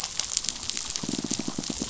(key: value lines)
label: biophony, pulse
recorder: SoundTrap 500